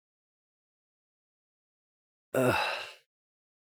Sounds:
Sigh